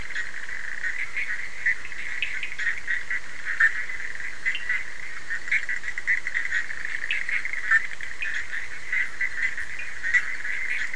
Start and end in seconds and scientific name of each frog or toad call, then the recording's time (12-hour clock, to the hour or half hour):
0.0	10.9	Boana bischoffi
2.1	2.7	Sphaenorhynchus surdus
4.5	4.7	Sphaenorhynchus surdus
7.0	8.4	Sphaenorhynchus surdus
12:30am